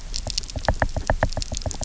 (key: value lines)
label: biophony, knock
recorder: SoundTrap 300